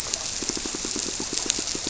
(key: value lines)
label: biophony, squirrelfish (Holocentrus)
recorder: SoundTrap 300